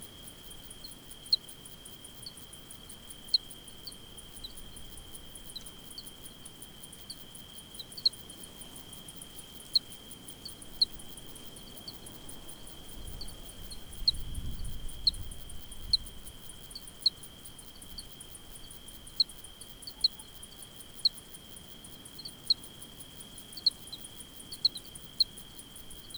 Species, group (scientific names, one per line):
Tessellana tessellata
Orthoptera